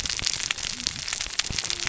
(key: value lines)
label: biophony, cascading saw
recorder: SoundTrap 600 or HydroMoth